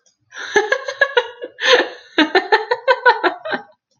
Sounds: Laughter